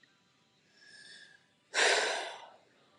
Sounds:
Sigh